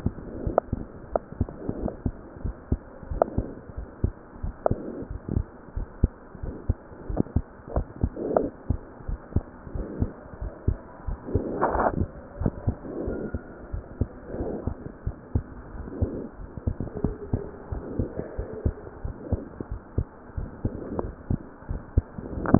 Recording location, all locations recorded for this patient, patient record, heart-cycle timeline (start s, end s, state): pulmonary valve (PV)
aortic valve (AV)+pulmonary valve (PV)+tricuspid valve (TV)+mitral valve (MV)
#Age: Child
#Sex: Male
#Height: nan
#Weight: nan
#Pregnancy status: False
#Murmur: Present
#Murmur locations: tricuspid valve (TV)
#Most audible location: tricuspid valve (TV)
#Systolic murmur timing: Early-systolic
#Systolic murmur shape: Decrescendo
#Systolic murmur grading: I/VI
#Systolic murmur pitch: Low
#Systolic murmur quality: Blowing
#Diastolic murmur timing: nan
#Diastolic murmur shape: nan
#Diastolic murmur grading: nan
#Diastolic murmur pitch: nan
#Diastolic murmur quality: nan
#Outcome: Abnormal
#Campaign: 2015 screening campaign
0.00	2.15	unannotated
2.15	2.38	diastole
2.38	2.56	S1
2.56	2.68	systole
2.68	2.80	S2
2.80	3.06	diastole
3.06	3.22	S1
3.22	3.33	systole
3.33	3.46	S2
3.46	3.73	diastole
3.73	3.89	S1
3.89	4.00	systole
4.00	4.14	S2
4.14	4.42	diastole
4.42	4.57	S1
4.57	4.67	systole
4.67	4.82	S2
4.82	5.07	diastole
5.07	5.21	S1
5.21	5.31	systole
5.31	5.44	S2
5.44	5.71	diastole
5.71	5.89	S1
5.89	5.98	systole
5.98	6.10	S2
6.10	6.39	diastole
6.39	6.53	S1
6.53	6.64	systole
6.64	6.77	S2
6.77	7.07	diastole
7.07	7.22	S1
7.22	7.30	systole
7.30	7.48	S2
7.48	7.69	diastole
7.69	7.84	S1
7.84	7.97	systole
7.97	8.13	S2
8.13	8.32	diastole
8.32	8.48	S1
8.48	8.65	systole
8.65	8.78	S2
8.78	9.02	diastole
9.02	9.20	S1
9.20	9.31	systole
9.31	9.44	S2
9.44	9.69	diastole
9.69	9.81	S1
9.81	9.98	systole
9.98	10.09	S2
10.09	10.37	diastole
10.37	10.53	S1
10.53	10.62	systole
10.62	10.77	S2
10.77	11.01	diastole
11.01	11.17	S1
11.17	11.27	systole
11.27	11.44	S2
11.44	22.59	unannotated